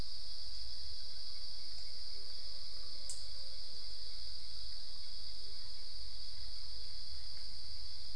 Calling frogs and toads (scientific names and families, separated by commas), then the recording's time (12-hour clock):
none
4:15am